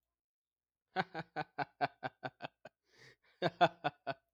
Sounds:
Laughter